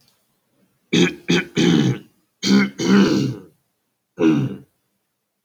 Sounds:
Throat clearing